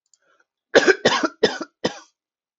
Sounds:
Cough